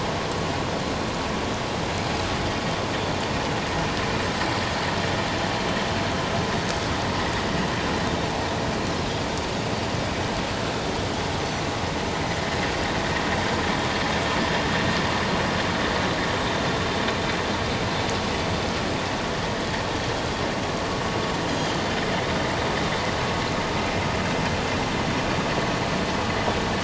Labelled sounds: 21.5	21.8	Pacific white-sided dolphin, 3.0 to 6.6 kHz

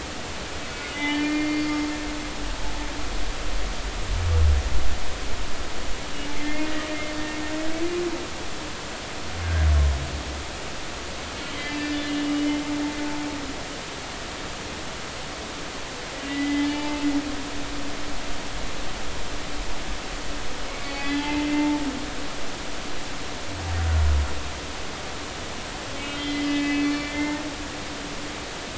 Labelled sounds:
0.9	1.7	humpback whale, 0.83 to 4.5 kHz
6.4	7.0	humpback whale, 1.8 to 2.2 kHz
11.5	12.6	humpback whale, 2.0 to 3.2 kHz
16.3	17.0	humpback whale, 0.86 to 3.3 kHz
20.7	21.8	humpback whale, 0.83 to 3.3 kHz
26.1	27.4	humpback whale, 1.7 to 3.2 kHz

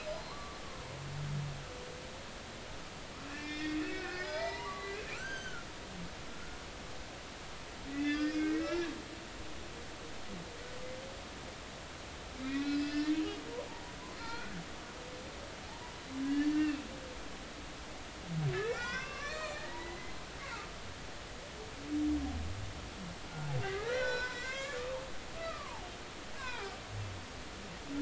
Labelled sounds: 0.3	0.6	humpback whale, 0.90 to 1.2 kHz
3.3	5.7	humpback whale, 0.83 to 8.0 kHz
6.3	6.6	humpback whale, 1.3 to 1.5 kHz
7.9	8.9	humpback whale, 1.5 to 5.3 kHz
12.4	13.1	humpback whale, 1.4 to 2.7 kHz
14.2	14.5	humpback whale, 1.3 to 4.3 kHz
16.2	16.8	humpback whale, 1.6 to 2.8 kHz
18.5	20.2	humpback whale, 0.80 to 4.4 kHz
23.6	25.0	humpback whale, 0.86 to 5.8 kHz
25.4	25.9	humpback whale, 0.80 to 1.4 kHz
26.4	26.8	humpback whale, 0.80 to 3.9 kHz

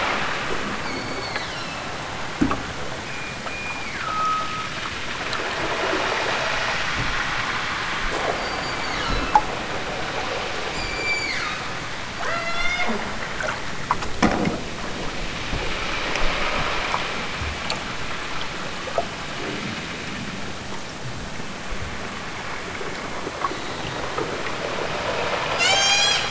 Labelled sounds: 0.7	1.9	killer whale, southern Alaska resident, 1.2 to 8.0 kHz
2.9	4.8	killer whale, southern Alaska resident, 0.92 to 5.7 kHz
8.3	9.5	killer whale, southern Alaska resident, 0.69 to 8.0 kHz
10.7	11.7	killer whale, southern Alaska resident, 0.74 to 8.0 kHz
12.2	13.0	killer whale, southern Alaska resident, 0.23 to 8.0 kHz
25.5	26.2	killer whale, southern Alaska resident, 0.32 to 8.0 kHz

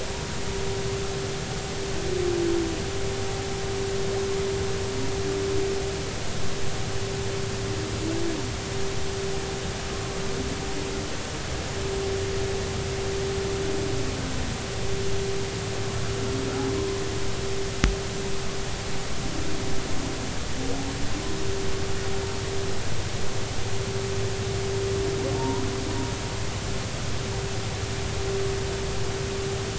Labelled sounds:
25.4	25.7	humpback whale, 0.86 to 1.0 kHz

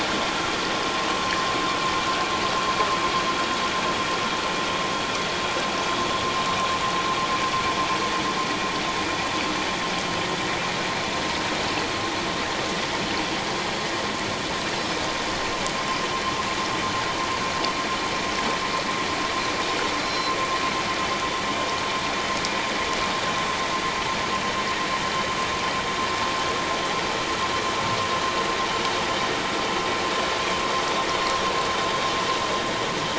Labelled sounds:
20.0	20.4	Pacific white-sided dolphin, 4.0 to 5.5 kHz

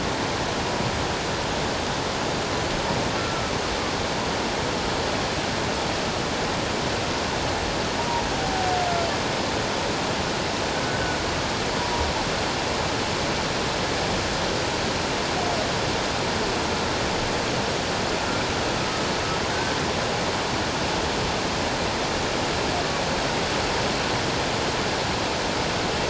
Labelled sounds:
3.2	3.5	humpback whale, 1.2 to 1.5 kHz

